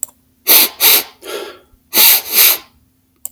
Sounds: Sniff